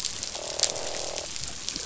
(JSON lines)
{"label": "biophony, croak", "recorder": "SoundTrap 500"}